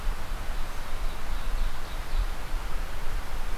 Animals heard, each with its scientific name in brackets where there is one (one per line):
Ovenbird (Seiurus aurocapilla)